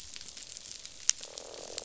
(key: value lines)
label: biophony, croak
recorder: SoundTrap 500